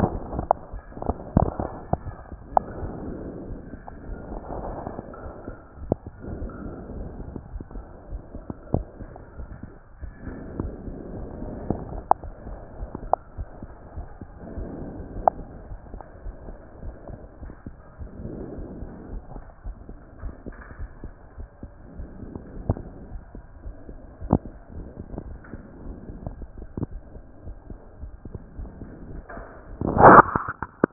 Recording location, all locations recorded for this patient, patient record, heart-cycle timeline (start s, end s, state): aortic valve (AV)
aortic valve (AV)+pulmonary valve (PV)+tricuspid valve (TV)+mitral valve (MV)
#Age: Child
#Sex: Female
#Height: 133.0 cm
#Weight: 34.6 kg
#Pregnancy status: False
#Murmur: Absent
#Murmur locations: nan
#Most audible location: nan
#Systolic murmur timing: nan
#Systolic murmur shape: nan
#Systolic murmur grading: nan
#Systolic murmur pitch: nan
#Systolic murmur quality: nan
#Diastolic murmur timing: nan
#Diastolic murmur shape: nan
#Diastolic murmur grading: nan
#Diastolic murmur pitch: nan
#Diastolic murmur quality: nan
#Outcome: Abnormal
#Campaign: 2014 screening campaign
0.00	15.57	unannotated
15.57	15.70	diastole
15.70	15.80	S1
15.80	15.92	systole
15.92	16.02	S2
16.02	16.24	diastole
16.24	16.36	S1
16.36	16.48	systole
16.48	16.56	S2
16.56	16.84	diastole
16.84	16.96	S1
16.96	17.10	systole
17.10	17.18	S2
17.18	17.42	diastole
17.42	17.52	S1
17.52	17.66	systole
17.66	17.76	S2
17.76	18.00	diastole
18.00	18.10	S1
18.10	18.22	systole
18.22	18.32	S2
18.32	18.56	diastole
18.56	18.68	S1
18.68	18.80	systole
18.80	18.90	S2
18.90	19.10	diastole
19.10	19.22	S1
19.22	19.34	systole
19.34	19.42	S2
19.42	19.66	diastole
19.66	19.76	S1
19.76	19.88	systole
19.88	19.98	S2
19.98	20.22	diastole
20.22	20.34	S1
20.34	20.46	systole
20.46	20.54	S2
20.54	20.80	diastole
20.80	20.90	S1
20.90	21.02	systole
21.02	21.12	S2
21.12	21.38	diastole
21.38	21.48	S1
21.48	21.62	systole
21.62	21.70	S2
21.70	21.98	diastole
21.98	22.08	S1
22.08	22.22	systole
22.22	22.32	S2
22.32	22.60	diastole
22.60	30.93	unannotated